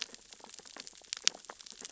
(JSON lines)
{"label": "biophony, sea urchins (Echinidae)", "recorder": "SoundTrap 600 or HydroMoth"}